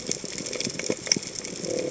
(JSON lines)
{"label": "biophony", "recorder": "HydroMoth"}